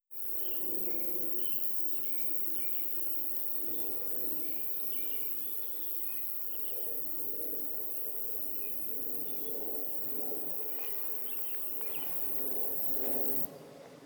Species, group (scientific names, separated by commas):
Roeseliana roeselii, Orthoptera